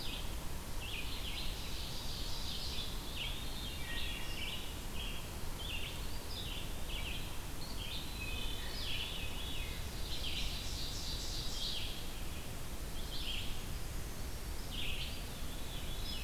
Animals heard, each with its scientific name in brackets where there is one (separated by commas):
Ovenbird (Seiurus aurocapilla), Wood Thrush (Hylocichla mustelina), Red-eyed Vireo (Vireo olivaceus), Brown Creeper (Certhia americana), Veery (Catharus fuscescens), Eastern Wood-Pewee (Contopus virens)